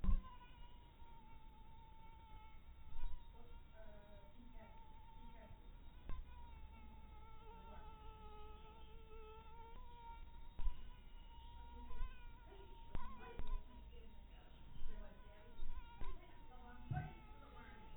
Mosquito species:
mosquito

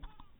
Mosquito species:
mosquito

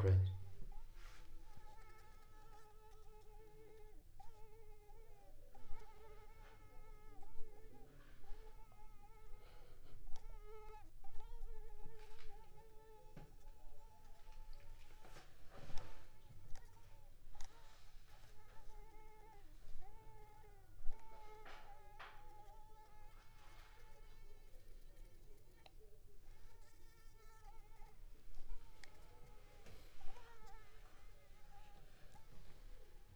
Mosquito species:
Culex pipiens complex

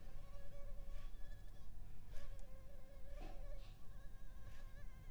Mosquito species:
Culex pipiens complex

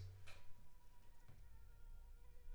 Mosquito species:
Anopheles funestus s.s.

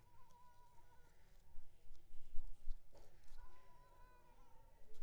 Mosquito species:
Culex pipiens complex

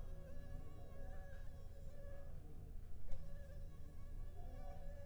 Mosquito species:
Anopheles arabiensis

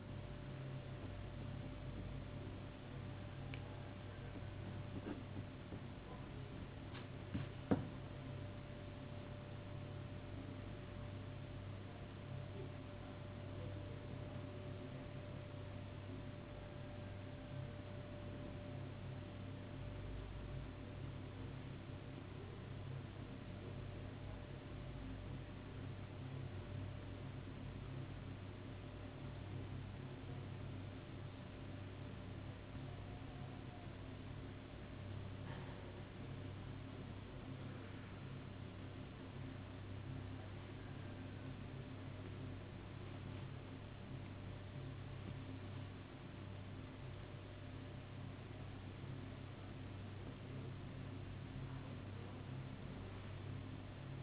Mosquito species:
no mosquito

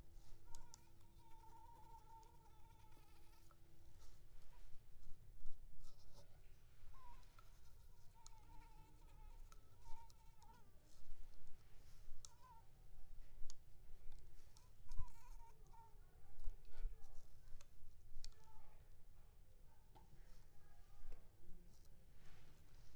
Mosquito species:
Culex pipiens complex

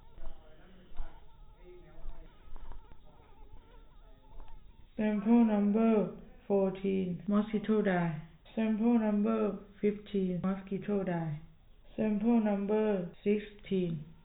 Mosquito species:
no mosquito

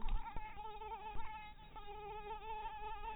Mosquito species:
mosquito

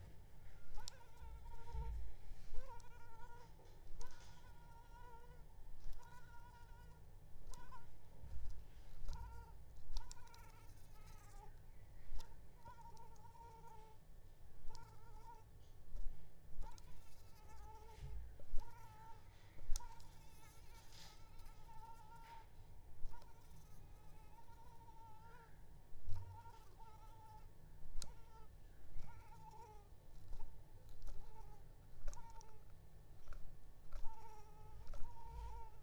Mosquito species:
Anopheles arabiensis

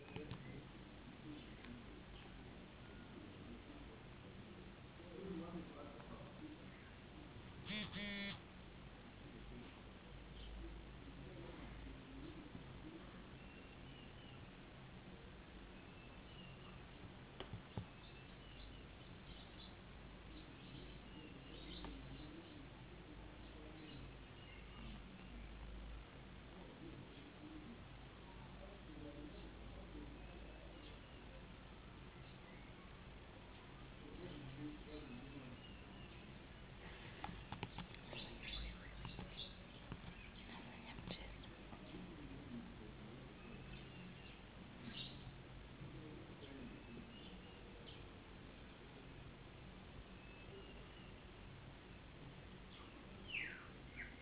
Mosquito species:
no mosquito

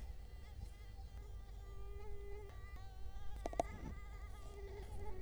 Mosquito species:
Culex quinquefasciatus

